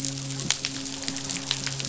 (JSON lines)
{"label": "biophony, midshipman", "recorder": "SoundTrap 500"}